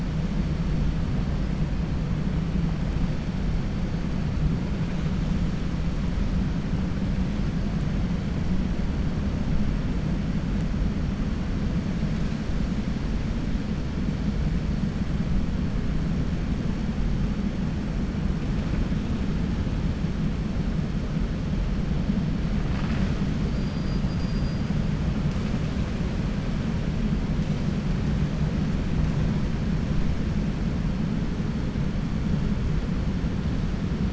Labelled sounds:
23.4	24.6	killer whale, 4.6 to 5.6 kHz

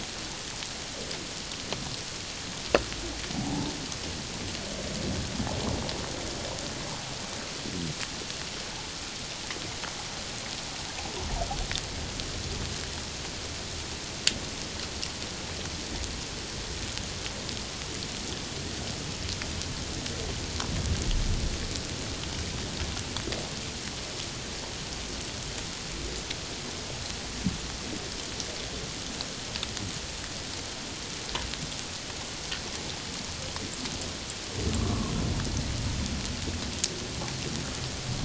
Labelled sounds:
3.3	3.7	humpback whale, 0.78 to 0.94 kHz
34.8	35.1	humpback whale, 1.0 to 1.2 kHz

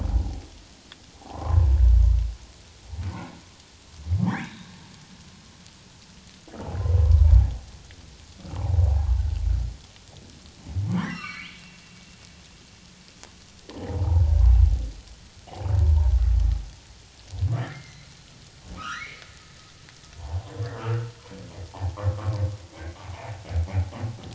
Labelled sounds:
1.2	1.7	humpback whale, 0.78 to 1.2 kHz
4.4	4.8	humpback whale, 1.5 to 4.1 kHz
8.5	9.1	humpback whale, 0.78 to 1.5 kHz
10.9	11.8	humpback whale, 0.88 to 5.7 kHz
13.8	14.4	humpback whale, 0.78 to 1.0 kHz
17.6	19.2	humpback whale, 1.1 to 6.0 kHz
20.2	21.1	humpback whale, 0.78 to 1.5 kHz
21.7	22.0	humpback whale, 0.78 to 1.1 kHz
22.6	22.9	humpback whale, 2.0 to 2.3 kHz

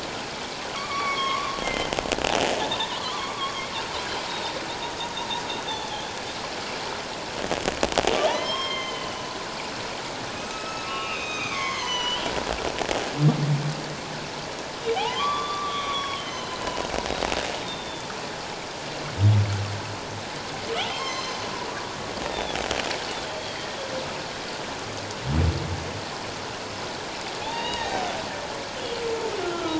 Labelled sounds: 0.7	2.0	humpback whale, 1.0 to 5.6 kHz
2.7	3.6	humpback whale, 0.84 to 3.9 kHz
5.7	5.9	humpback whale, 3.4 to 3.7 kHz
8.3	9.3	humpback whale, 0.81 to 6.3 kHz
10.3	12.3	humpback whale, 0.94 to 6.6 kHz
14.9	16.8	humpback whale, 0.78 to 5.8 kHz
17.6	18.1	humpback whale, 3.4 to 3.7 kHz
20.9	21.4	humpback whale, 0.97 to 6.2 kHz
22.2	22.6	humpback whale, 3.3 to 3.8 kHz
23.5	23.8	humpback whale, 1.8 to 2.1 kHz
27.4	28.1	humpback whale, 0.78 to 3.9 kHz
28.8	29.7	humpback whale, 1.2 to 3.1 kHz

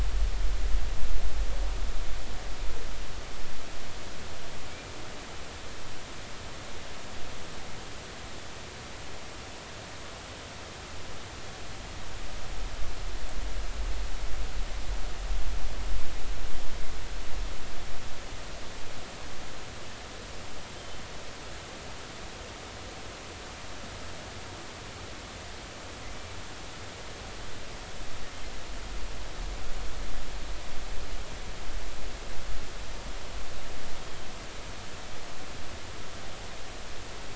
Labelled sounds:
20.7	21.0	killer whale, offshore, 3.0 to 3.2 kHz
34.0	34.3	killer whale, offshore, 3.1 to 3.3 kHz

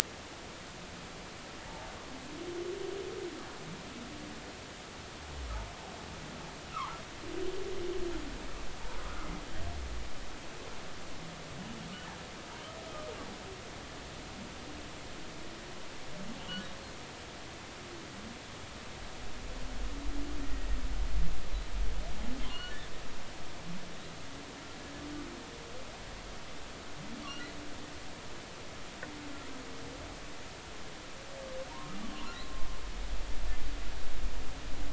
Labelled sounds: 6.7	7.0	humpback whale, 0.80 to 1.4 kHz
9.0	9.3	humpback whale, 1.2 to 1.5 kHz
20.4	20.7	humpback whale, 1.8 to 1.9 kHz
22.5	22.8	humpback whale, 1.4 to 4.4 kHz

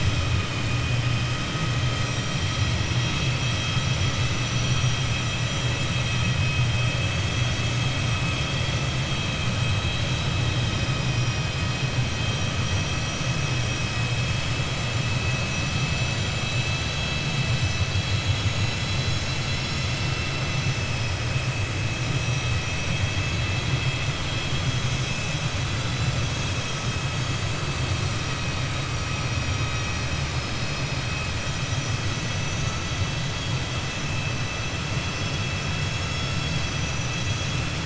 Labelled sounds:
29.2	30.1	vessel noise, 4.9 to 6.4 kHz

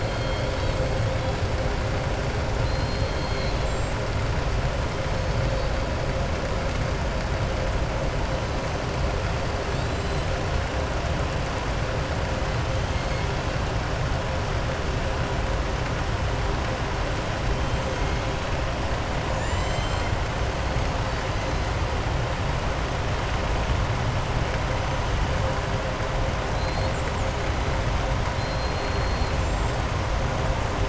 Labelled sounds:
0.0	0.8	killer whale, southern resident, 3.2 to 5.3 kHz
2.5	4.0	killer whale, southern resident, 2.7 to 8.0 kHz
9.6	10.2	killer whale, southern resident, 3.1 to 5.1 kHz
19.2	20.1	killer whale, southern resident, 1.8 to 7.5 kHz
28.3	29.3	killer whale, southern resident, 3.2 to 4.3 kHz

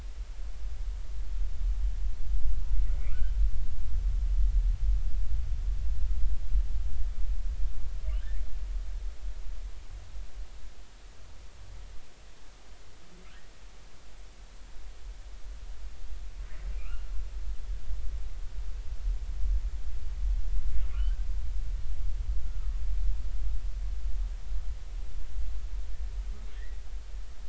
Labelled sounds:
3.1	3.3	humpback whale, 1.2 to 1.7 kHz
16.7	17.1	humpback whale, 1.1 to 2.9 kHz
20.9	21.3	humpback whale, 1.1 to 1.6 kHz

